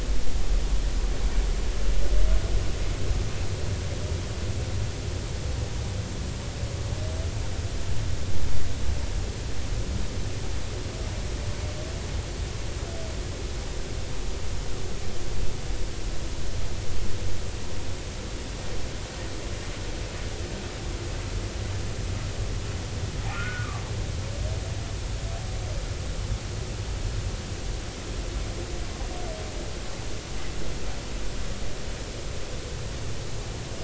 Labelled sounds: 23.3	23.8	humpback whale, 1.1 to 1.5 kHz

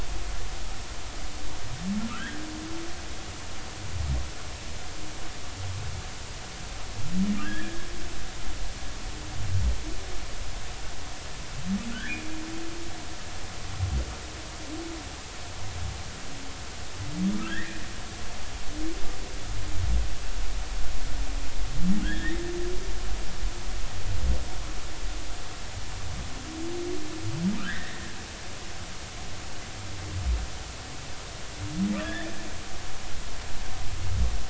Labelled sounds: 2.1	2.4	humpback whale, 1.2 to 2.0 kHz
7.4	7.9	humpback whale, 1.4 to 3.4 kHz
17.5	17.8	humpback whale, 1.5 to 2.1 kHz
22.0	22.4	humpback whale, 1.4 to 3.7 kHz
27.6	28.1	humpback whale, 1.2 to 3.8 kHz
32.0	32.3	humpback whale, 1.5 to 3.6 kHz

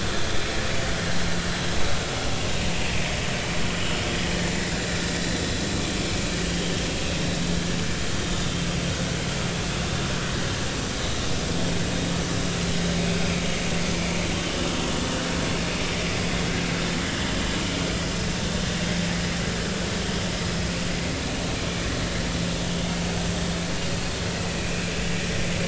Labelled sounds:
3.8	4.0	vessel noise, 2.8 to 3.1 kHz
6.5	6.7	vessel noise, 3.0 to 3.3 kHz
24.5	24.8	vessel noise, 2.4 to 2.7 kHz

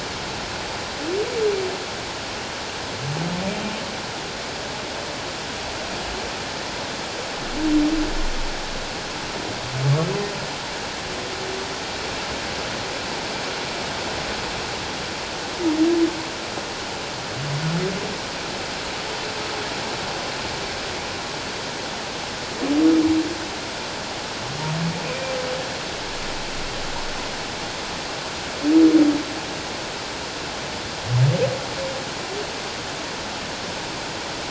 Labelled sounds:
25.1	25.4	humpback whale, 2.3 to 2.4 kHz

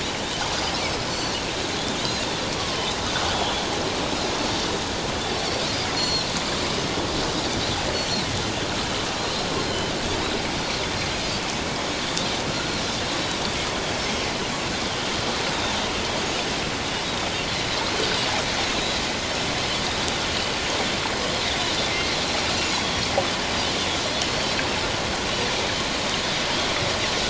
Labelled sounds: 1.1	1.4	Pacific white-sided dolphin, 4.2 to 6.0 kHz
3.2	3.6	Pacific white-sided dolphin, 3.3 to 3.5 kHz
6.0	6.3	Pacific white-sided dolphin, 4.0 to 4.4 kHz
7.9	8.3	Pacific white-sided dolphin, 3.7 to 5.9 kHz
9.2	9.4	Pacific white-sided dolphin, 4.0 to 4.3 kHz
12.5	12.8	Pacific white-sided dolphin, 3.9 to 4.4 kHz
22.7	23.1	Pacific white-sided dolphin, 3.2 to 3.5 kHz

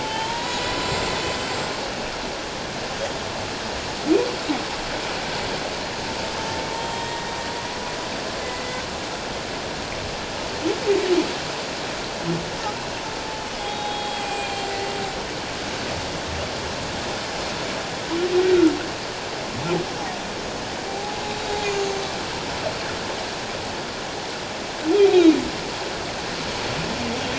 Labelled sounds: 0.0	1.4	humpback whale, 0.84 to 7.6 kHz
6.7	7.3	humpback whale, 0.88 to 3.3 kHz
8.4	8.8	humpback whale, 1.9 to 2.1 kHz
13.6	14.9	humpback whale, 0.78 to 8.0 kHz
20.9	22.1	humpback whale, 0.78 to 6.9 kHz
25.1	25.3	humpback whale, 3.7 to 3.9 kHz

